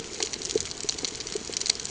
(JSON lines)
{"label": "ambient", "recorder": "HydroMoth"}